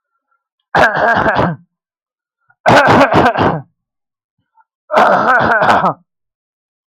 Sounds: Throat clearing